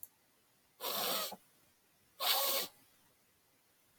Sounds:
Sniff